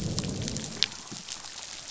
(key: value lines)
label: biophony, growl
recorder: SoundTrap 500